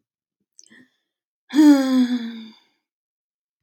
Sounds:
Sigh